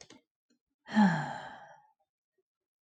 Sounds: Sigh